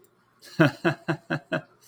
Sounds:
Laughter